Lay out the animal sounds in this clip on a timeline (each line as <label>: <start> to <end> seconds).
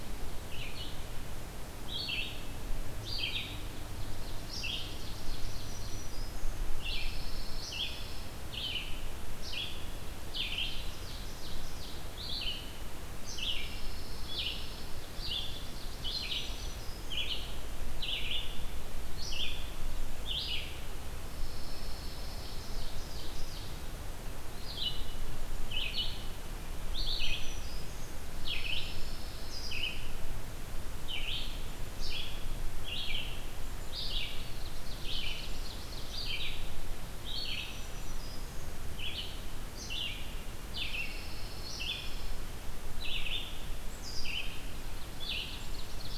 Red-eyed Vireo (Vireo olivaceus): 0.4 to 20.6 seconds
Ovenbird (Seiurus aurocapilla): 3.8 to 5.9 seconds
Black-throated Green Warbler (Setophaga virens): 5.6 to 6.6 seconds
Pine Warbler (Setophaga pinus): 6.8 to 8.4 seconds
Ovenbird (Seiurus aurocapilla): 10.6 to 12.1 seconds
Pine Warbler (Setophaga pinus): 13.6 to 14.9 seconds
Ovenbird (Seiurus aurocapilla): 15.3 to 17.0 seconds
Black-throated Green Warbler (Setophaga virens): 16.0 to 17.2 seconds
Pine Warbler (Setophaga pinus): 21.4 to 22.7 seconds
Ovenbird (Seiurus aurocapilla): 22.3 to 23.7 seconds
Red-eyed Vireo (Vireo olivaceus): 24.5 to 45.7 seconds
Black-throated Green Warbler (Setophaga virens): 26.9 to 28.2 seconds
Pine Warbler (Setophaga pinus): 28.4 to 29.9 seconds
Ovenbird (Seiurus aurocapilla): 34.4 to 36.3 seconds
Black-throated Green Warbler (Setophaga virens): 37.5 to 38.7 seconds
Pine Warbler (Setophaga pinus): 40.9 to 42.3 seconds
Ovenbird (Seiurus aurocapilla): 45.0 to 46.2 seconds